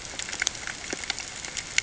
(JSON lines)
{"label": "ambient", "recorder": "HydroMoth"}